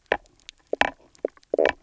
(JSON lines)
{"label": "biophony, knock croak", "recorder": "SoundTrap 300"}